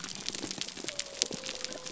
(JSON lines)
{"label": "biophony", "recorder": "SoundTrap 300"}